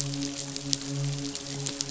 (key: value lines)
label: biophony, midshipman
recorder: SoundTrap 500